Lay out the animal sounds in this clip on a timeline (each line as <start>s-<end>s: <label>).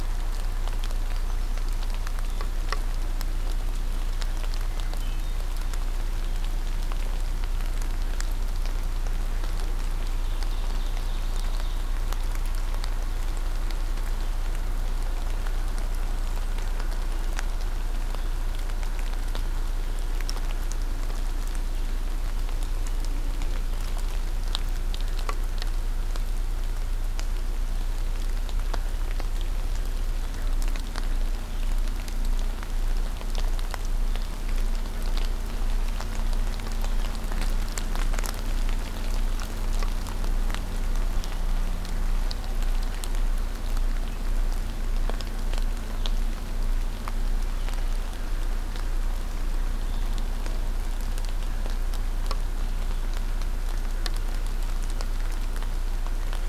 1.0s-1.6s: Hermit Thrush (Catharus guttatus)
4.8s-5.5s: Hermit Thrush (Catharus guttatus)
10.1s-11.9s: Ovenbird (Seiurus aurocapilla)